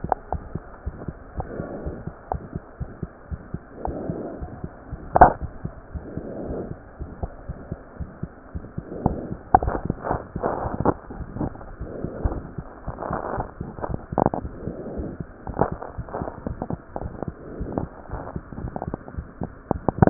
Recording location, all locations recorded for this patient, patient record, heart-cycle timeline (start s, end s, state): aortic valve (AV)
aortic valve (AV)+pulmonary valve (PV)+tricuspid valve (TV)+mitral valve (MV)
#Age: Child
#Sex: Male
#Height: 102.0 cm
#Weight: 18.4 kg
#Pregnancy status: False
#Murmur: Absent
#Murmur locations: nan
#Most audible location: nan
#Systolic murmur timing: nan
#Systolic murmur shape: nan
#Systolic murmur grading: nan
#Systolic murmur pitch: nan
#Systolic murmur quality: nan
#Diastolic murmur timing: nan
#Diastolic murmur shape: nan
#Diastolic murmur grading: nan
#Diastolic murmur pitch: nan
#Diastolic murmur quality: nan
#Outcome: Normal
#Campaign: 2015 screening campaign
0.00	0.12	unannotated
0.12	0.32	diastole
0.32	0.42	S1
0.42	0.50	systole
0.50	0.62	S2
0.62	0.82	diastole
0.82	0.96	S1
0.96	1.06	systole
1.06	1.16	S2
1.16	1.36	diastole
1.36	1.48	S1
1.48	1.56	systole
1.56	1.66	S2
1.66	1.84	diastole
1.84	1.96	S1
1.96	2.04	systole
2.04	2.12	S2
2.12	2.32	diastole
2.32	2.42	S1
2.42	2.50	systole
2.50	2.60	S2
2.60	2.80	diastole
2.80	2.90	S1
2.90	2.98	systole
2.98	3.08	S2
3.08	3.30	diastole
3.30	3.40	S1
3.40	3.50	systole
3.50	3.60	S2
3.60	3.82	diastole
3.82	4.00	S1
4.00	4.06	systole
4.06	4.18	S2
4.18	4.38	diastole
4.38	4.50	S1
4.50	4.60	systole
4.60	4.70	S2
4.70	4.92	diastole
4.92	5.02	S1
5.02	5.14	systole
5.14	5.30	S2
5.30	5.40	diastole
5.40	5.52	S1
5.52	5.62	systole
5.62	5.72	S2
5.72	5.94	diastole
5.94	6.04	S1
6.04	6.14	systole
6.14	6.24	S2
6.24	6.48	diastole
6.48	6.59	S1
6.59	6.69	systole
6.69	6.78	S2
6.78	6.98	diastole
6.98	7.10	S1
7.10	7.20	systole
7.20	7.32	S2
7.32	7.48	diastole
7.48	7.58	S1
7.58	7.70	systole
7.70	7.78	S2
7.78	7.98	diastole
7.98	8.10	S1
8.10	8.21	systole
8.21	8.30	S2
8.30	8.54	diastole
8.54	8.66	S1
8.66	8.76	systole
8.76	8.86	S2
8.86	8.97	diastole
8.97	20.10	unannotated